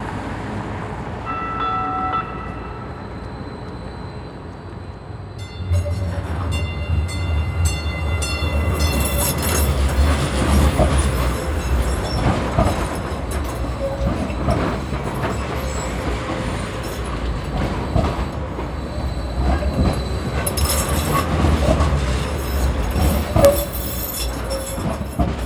Is a train passing?
yes